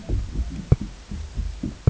{"label": "ambient", "recorder": "HydroMoth"}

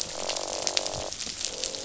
{"label": "biophony, croak", "recorder": "SoundTrap 500"}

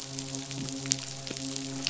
{"label": "biophony, midshipman", "recorder": "SoundTrap 500"}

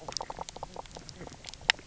{"label": "biophony, knock croak", "recorder": "SoundTrap 300"}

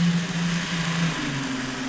{"label": "anthrophony, boat engine", "recorder": "SoundTrap 500"}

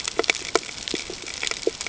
{"label": "ambient", "recorder": "HydroMoth"}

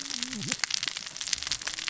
{"label": "biophony, cascading saw", "recorder": "SoundTrap 600 or HydroMoth"}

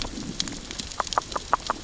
{"label": "biophony, grazing", "recorder": "SoundTrap 600 or HydroMoth"}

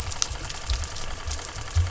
{"label": "anthrophony, boat engine", "recorder": "SoundTrap 300"}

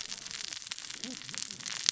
{"label": "biophony, cascading saw", "recorder": "SoundTrap 600 or HydroMoth"}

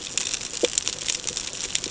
{"label": "ambient", "recorder": "HydroMoth"}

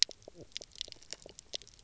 {"label": "biophony, knock croak", "recorder": "SoundTrap 300"}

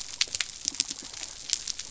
{"label": "biophony", "recorder": "SoundTrap 300"}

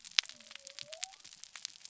{"label": "biophony", "recorder": "SoundTrap 300"}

